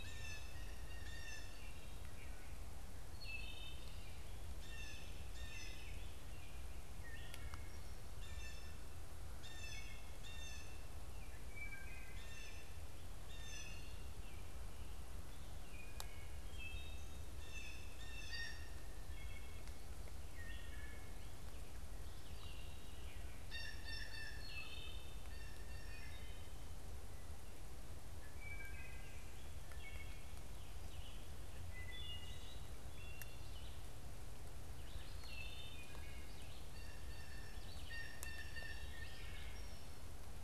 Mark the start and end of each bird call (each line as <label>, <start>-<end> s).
Blue Jay (Cyanocitta cristata), 0.0-14.3 s
Wood Thrush (Hylocichla mustelina), 3.1-4.4 s
Red-eyed Vireo (Vireo olivaceus), 3.7-40.4 s
Wood Thrush (Hylocichla mustelina), 6.9-7.8 s
Wood Thrush (Hylocichla mustelina), 9.2-10.2 s
Wood Thrush (Hylocichla mustelina), 11.3-12.4 s
Wood Thrush (Hylocichla mustelina), 13.2-14.0 s
Wood Thrush (Hylocichla mustelina), 15.5-17.2 s
Blue Jay (Cyanocitta cristata), 17.2-19.0 s
Wood Thrush (Hylocichla mustelina), 18.8-21.2 s
Blue Jay (Cyanocitta cristata), 23.1-24.7 s
Wood Thrush (Hylocichla mustelina), 24.2-25.2 s
Blue Jay (Cyanocitta cristata), 25.1-26.3 s
Wood Thrush (Hylocichla mustelina), 28.0-29.2 s
Wood Thrush (Hylocichla mustelina), 29.6-30.4 s
Wood Thrush (Hylocichla mustelina), 31.6-32.6 s
Wood Thrush (Hylocichla mustelina), 35.0-36.0 s
Blue Jay (Cyanocitta cristata), 36.3-39.3 s